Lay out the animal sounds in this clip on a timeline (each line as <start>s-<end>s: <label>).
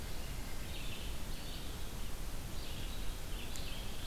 0.0s-4.1s: Red-eyed Vireo (Vireo olivaceus)